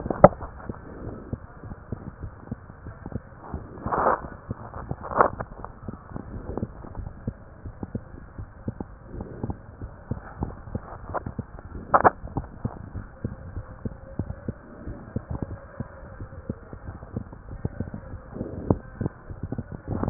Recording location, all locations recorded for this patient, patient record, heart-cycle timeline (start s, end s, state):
mitral valve (MV)
aortic valve (AV)+pulmonary valve (PV)+tricuspid valve (TV)+mitral valve (MV)
#Age: Child
#Sex: Male
#Height: 115.0 cm
#Weight: 23.5 kg
#Pregnancy status: False
#Murmur: Absent
#Murmur locations: nan
#Most audible location: nan
#Systolic murmur timing: nan
#Systolic murmur shape: nan
#Systolic murmur grading: nan
#Systolic murmur pitch: nan
#Systolic murmur quality: nan
#Diastolic murmur timing: nan
#Diastolic murmur shape: nan
#Diastolic murmur grading: nan
#Diastolic murmur pitch: nan
#Diastolic murmur quality: nan
#Outcome: Abnormal
#Campaign: 2015 screening campaign
0.00	6.72	unannotated
6.72	6.98	diastole
6.98	7.10	S1
7.10	7.26	systole
7.26	7.34	S2
7.34	7.66	diastole
7.66	7.78	S1
7.78	7.94	systole
7.94	8.02	S2
8.02	8.38	diastole
8.38	8.50	S1
8.50	8.66	systole
8.66	8.76	S2
8.76	9.14	diastole
9.14	9.28	S1
9.28	9.41	systole
9.41	9.58	S2
9.58	9.80	diastole
9.80	9.94	S1
9.94	10.10	systole
10.10	10.20	S2
10.20	10.38	diastole
10.38	10.52	S1
10.52	10.68	systole
10.68	10.82	S2
10.82	11.07	diastole
11.07	11.18	S1
11.18	11.35	systole
11.35	11.46	S2
11.46	11.74	diastole
11.74	11.84	S1
11.84	11.94	systole
11.94	12.14	S2
12.14	12.35	diastole
12.35	12.46	S1
12.46	12.64	systole
12.64	12.72	S2
12.72	12.96	diastole
12.96	13.06	S1
13.06	13.24	systole
13.24	13.34	S2
13.34	13.56	diastole
13.56	13.66	S1
13.66	13.84	systole
13.84	13.94	S2
13.94	14.17	diastole
14.17	14.33	S1
14.33	14.47	systole
14.47	14.56	S2
14.56	14.88	diastole
14.88	14.98	S1
14.98	15.16	systole
15.16	15.24	S2
15.24	20.10	unannotated